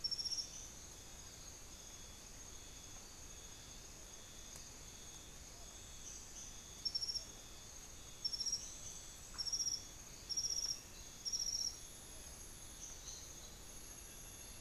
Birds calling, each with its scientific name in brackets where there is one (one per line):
unidentified bird